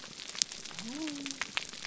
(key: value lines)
label: biophony
recorder: SoundTrap 300